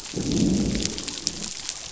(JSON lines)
{"label": "biophony, growl", "recorder": "SoundTrap 500"}